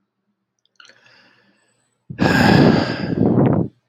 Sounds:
Sigh